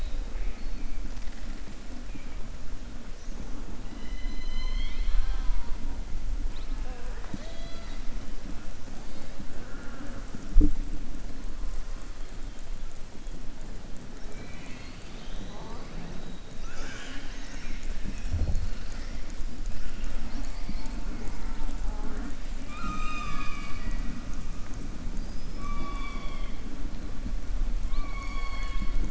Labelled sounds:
14.2	15.9	killer whale, southern resident, 1.5 to 5.0 kHz
22.6	24.1	killer whale, southern resident, 0.32 to 7.5 kHz
27.8	29.0	killer whale, southern resident, 0.20 to 6.7 kHz

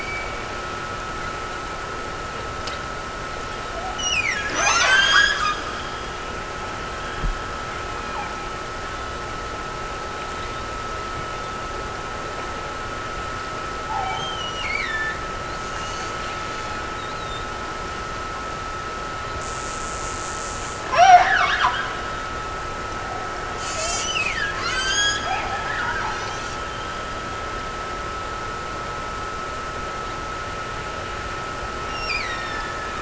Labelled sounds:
4.0	5.5	killer whale, Bigg's (transient), Gulf of Alaska transient, 0.48 to 8.0 kHz
14.0	15.4	killer whale, Bigg's (transient), Gulf of Alaska transient, 1.6 to 6.6 kHz
20.9	21.9	killer whale, Bigg's (transient), Gulf of Alaska transient, 0.38 to 5.9 kHz
24.0	25.6	killer whale, Bigg's (transient), Gulf of Alaska transient, 1.1 to 8.0 kHz
31.9	33.0	killer whale, Bigg's (transient), Gulf of Alaska transient, 1.5 to 5.7 kHz

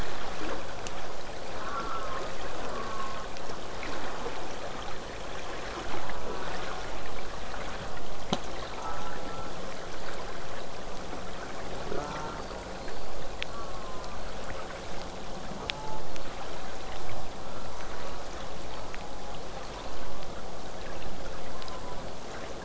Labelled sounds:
1.5	2.4	killer whale, southern resident, J pod, call S04, 0.31 to 1.7 kHz
2.6	3.4	killer whale, southern resident, J pod, call S04, 0.82 to 1.7 kHz
6.2	6.9	killer whale, southern resident, J pod, call S04, 0.47 to 1.5 kHz
8.7	9.6	killer whale, southern resident, J pod, call S04, 0.34 to 1.5 kHz
11.9	12.5	killer whale, southern resident, J pod, call S04, 0.16 to 1.6 kHz
12.1	14.4	killer whale, southern resident, J pod, whistle, 3.9 to 8.0 kHz
13.5	14.2	killer whale, southern resident, J pod, call S04, 0.81 to 1.7 kHz
15.6	16.1	killer whale, southern resident, J pod, call S04, 0.43 to 1.5 kHz
16.1	16.5	killer whale, southern resident, J pod, whistle, 4.1 to 8.0 kHz
17.7	18.0	killer whale, southern resident, J pod, whistle, 5.7 to 6.4 kHz
17.8	18.4	killer whale, southern resident, J pod, call S04, 0.27 to 1.4 kHz
18.6	18.9	killer whale, southern resident, J pod, whistle, 4.3 to 4.8 kHz
21.4	22.1	killer whale, southern resident, J pod, call S04, 0.39 to 1.4 kHz

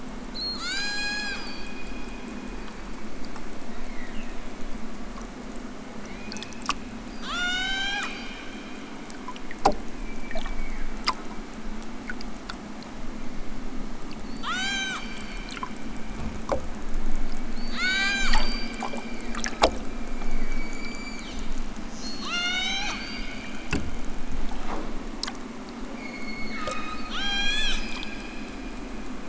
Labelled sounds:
0.2	1.7	killer whale, southern Alaska resident, 0.55 to 8.0 kHz
2.5	4.7	killer whale, southern Alaska resident, 1.3 to 5.1 kHz
5.9	6.6	killer whale, southern Alaska resident, 0.46 to 5.4 kHz
7.0	8.3	killer whale, southern Alaska resident, 0.46 to 8.0 kHz
9.9	11.4	killer whale, southern Alaska resident, 1.0 to 2.6 kHz
13.1	15.4	killer whale, southern Alaska resident, 0.46 to 8.0 kHz
17.5	19.4	killer whale, southern Alaska resident, 0.55 to 8.0 kHz
20.0	23.4	killer whale, southern Alaska resident, 0.41 to 8.0 kHz
25.9	28.2	killer whale, southern Alaska resident, 0.64 to 8.0 kHz

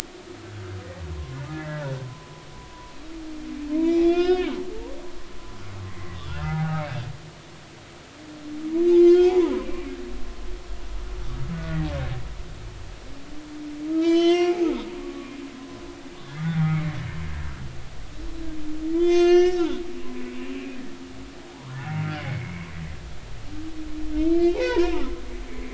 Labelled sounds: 1.1	2.5	humpback whale, 0.96 to 2.1 kHz
3.8	6.8	humpback whale, 0.80 to 5.5 kHz
8.9	9.5	humpback whale, 0.83 to 5.5 kHz
11.5	11.8	humpback whale, 1.4 to 1.5 kHz
14.0	15.3	humpback whale, 0.93 to 6.6 kHz
16.4	16.9	humpback whale, 1.1 to 2.4 kHz
18.1	18.5	humpback whale, 3.8 to 4.0 kHz
18.9	19.7	humpback whale, 0.96 to 7.8 kHz
20.5	20.8	humpback whale, 2.4 to 2.8 kHz
21.5	22.7	humpback whale, 0.80 to 2.3 kHz
24.3	25.1	humpback whale, 0.80 to 5.4 kHz

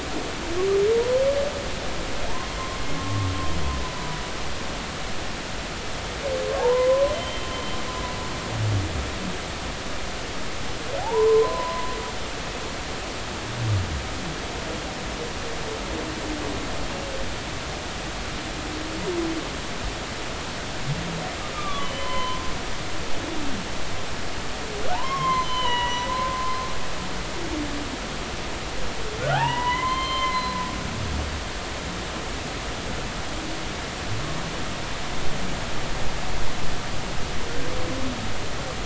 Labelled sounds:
0.9	1.2	humpback whale, 0.90 to 1.1 kHz
2.9	3.3	humpback whale, 1.1 to 1.2 kHz
6.5	7.5	humpback whale, 0.80 to 3.2 kHz
11.0	11.9	humpback whale, 0.80 to 1.1 kHz
21.5	22.4	humpback whale, 0.93 to 3.1 kHz
24.9	26.6	humpback whale, 0.80 to 6.3 kHz
29.2	30.6	humpback whale, 0.80 to 4.2 kHz

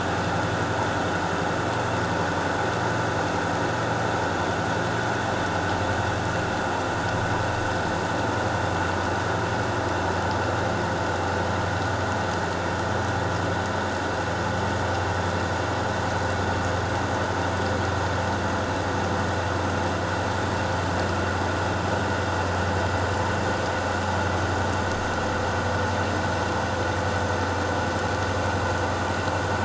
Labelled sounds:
1.2	1.4	vessel noise, 0.88 to 1.0 kHz

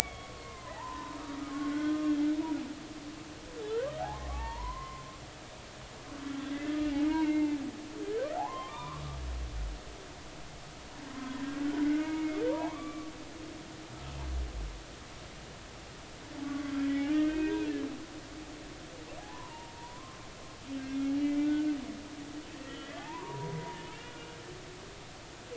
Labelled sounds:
0.4	1.2	humpback whale, 0.80 to 2.2 kHz
1.7	2.0	humpback whale, 1.4 to 1.6 kHz
4.0	5.0	humpback whale, 0.80 to 2.9 kHz
6.5	7.6	humpback whale, 0.86 to 2.3 kHz
8.3	9.0	humpback whale, 0.80 to 2.5 kHz
11.1	11.4	humpback whale, 0.96 to 1.1 kHz
12.0	13.4	humpback whale, 0.80 to 2.4 kHz
16.4	17.7	humpback whale, 0.90 to 3.2 kHz
19.2	20.2	humpback whale, 0.80 to 1.3 kHz
21.2	21.7	humpback whale, 1.4 to 2.4 kHz
22.6	23.8	humpback whale, 0.80 to 3.4 kHz

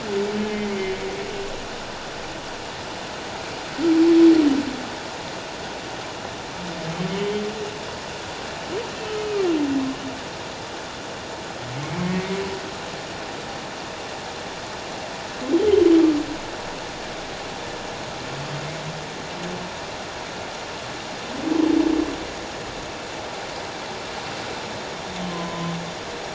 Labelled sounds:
7.1	7.4	humpback whale, 2.9 to 3.2 kHz
9.1	9.5	humpback whale, 2.3 to 3.1 kHz
12.0	12.4	humpback whale, 2.0 to 2.3 kHz
25.3	25.7	humpback whale, 0.97 to 1.1 kHz

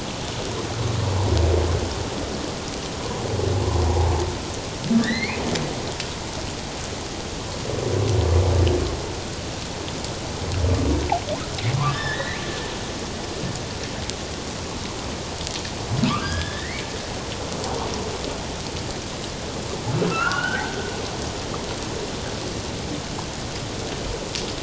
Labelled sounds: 3.9	5.4	humpback whale, 0.78 to 4.5 kHz
11.8	12.4	humpback whale, 0.97 to 4.0 kHz
16.1	16.9	humpback whale, 1.0 to 2.4 kHz
20.1	20.8	humpback whale, 1.2 to 3.1 kHz

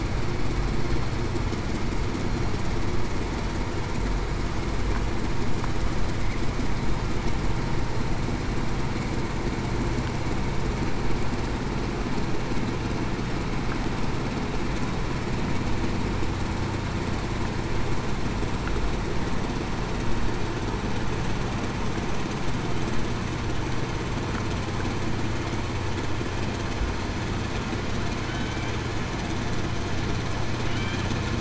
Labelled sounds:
28.3	28.6	killer whale, Bigg's (transient), 1.48 to 1.55 kHz

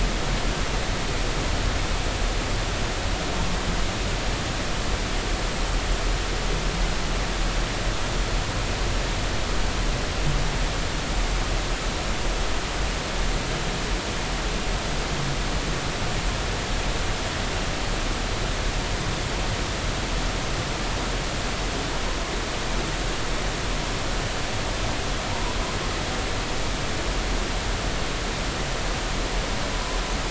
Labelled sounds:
25.3	25.6	humpback whale, 0.83 to 1.0 kHz

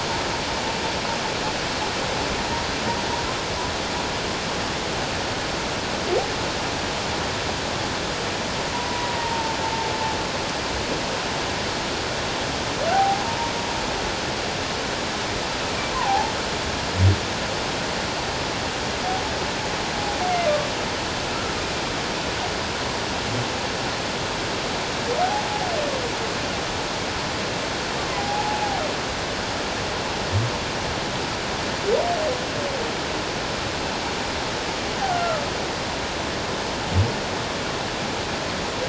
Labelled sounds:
8.7	9.9	humpback whale, 0.81 to 1.0 kHz
12.9	13.2	humpback whale, 0.78 to 0.88 kHz
15.9	16.3	humpback whale, 0.78 to 1.1 kHz
28.2	28.6	humpback whale, 0.78 to 0.91 kHz
35.1	35.4	humpback whale, 1.2 to 1.5 kHz

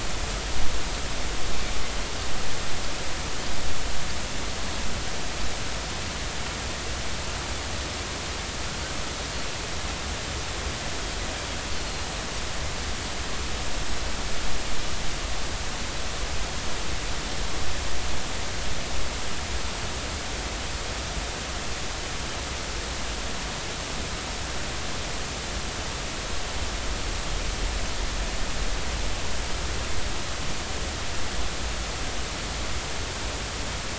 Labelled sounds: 11.8	12.1	Pacific white-sided dolphin, 4.2 to 4.4 kHz

